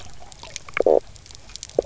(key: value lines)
label: biophony, knock croak
recorder: SoundTrap 300